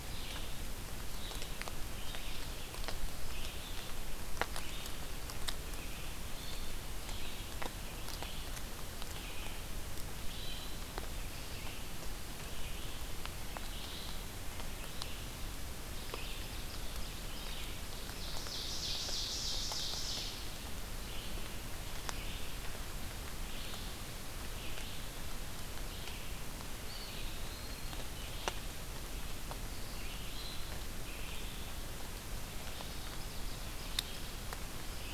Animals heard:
Hermit Thrush (Catharus guttatus)
Red-eyed Vireo (Vireo olivaceus)
Ovenbird (Seiurus aurocapilla)
Eastern Wood-Pewee (Contopus virens)

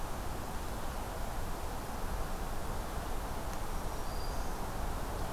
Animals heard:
Black-throated Green Warbler (Setophaga virens)

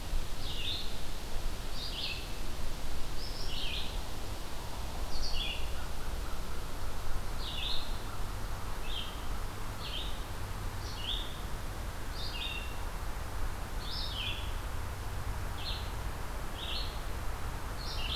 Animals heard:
American Crow (Corvus brachyrhynchos)
Red-eyed Vireo (Vireo olivaceus)

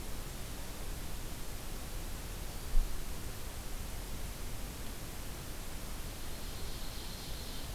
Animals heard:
Ovenbird (Seiurus aurocapilla)

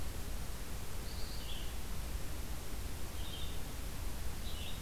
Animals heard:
Red-eyed Vireo (Vireo olivaceus)

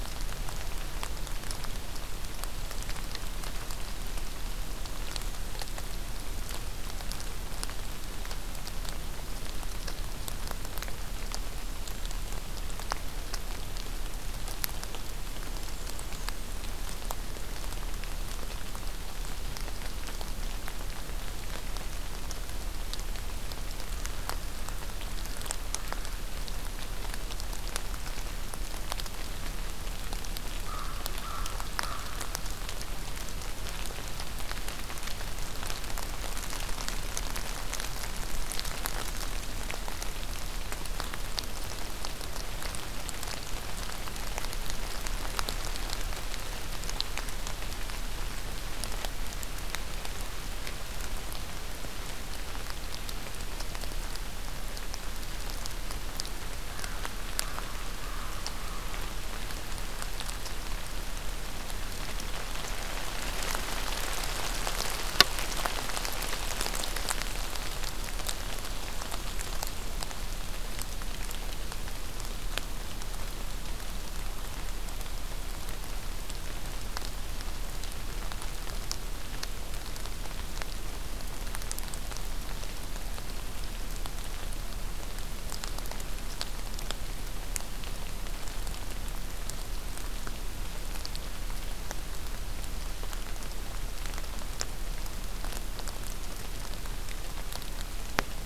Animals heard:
Black-and-white Warbler (Mniotilta varia)
American Crow (Corvus brachyrhynchos)

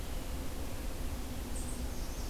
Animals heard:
unidentified call
Blackburnian Warbler (Setophaga fusca)

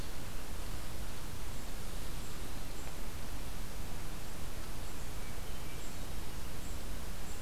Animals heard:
Hermit Thrush (Catharus guttatus)

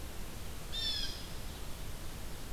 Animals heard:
Blue Jay (Cyanocitta cristata)

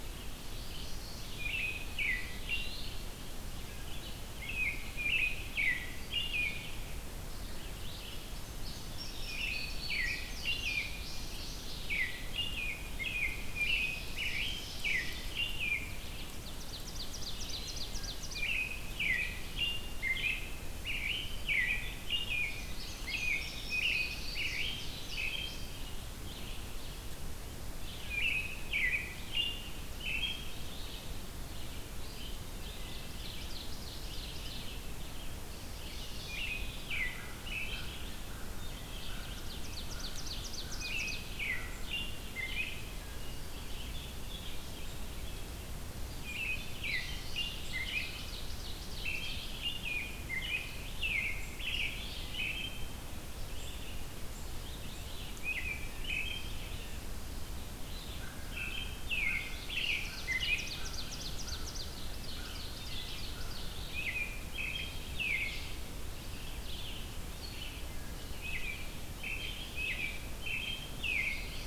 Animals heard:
American Crow (Corvus brachyrhynchos)
American Robin (Turdus migratorius)
Ovenbird (Seiurus aurocapilla)
Eastern Wood-Pewee (Contopus virens)
Red-eyed Vireo (Vireo olivaceus)
Indigo Bunting (Passerina cyanea)

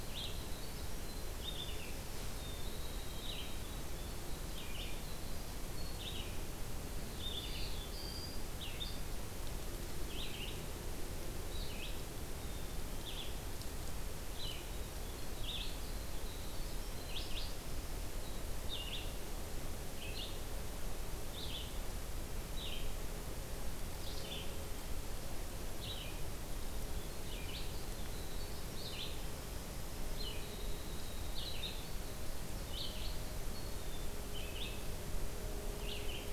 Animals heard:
Winter Wren (Troglodytes hiemalis)
Red-eyed Vireo (Vireo olivaceus)
Black-throated Blue Warbler (Setophaga caerulescens)
Black-capped Chickadee (Poecile atricapillus)

